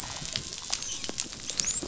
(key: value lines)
label: biophony, dolphin
recorder: SoundTrap 500